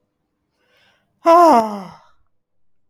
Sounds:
Sigh